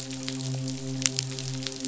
{"label": "biophony, midshipman", "recorder": "SoundTrap 500"}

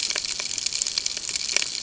{"label": "ambient", "recorder": "HydroMoth"}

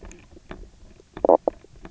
{"label": "biophony, knock croak", "recorder": "SoundTrap 300"}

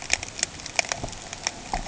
{"label": "ambient", "recorder": "HydroMoth"}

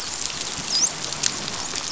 {"label": "biophony, dolphin", "recorder": "SoundTrap 500"}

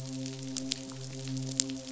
{"label": "biophony, midshipman", "recorder": "SoundTrap 500"}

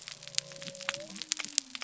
{"label": "biophony", "recorder": "SoundTrap 300"}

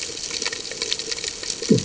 {"label": "anthrophony, bomb", "recorder": "HydroMoth"}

